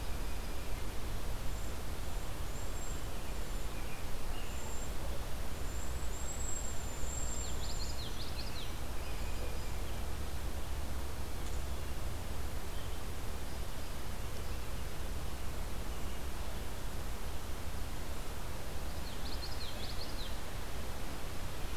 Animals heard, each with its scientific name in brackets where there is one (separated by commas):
American Robin (Turdus migratorius), Common Yellowthroat (Geothlypis trichas), Cedar Waxwing (Bombycilla cedrorum), Blue Jay (Cyanocitta cristata)